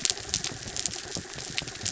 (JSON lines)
{"label": "anthrophony, mechanical", "recorder": "SoundTrap 300"}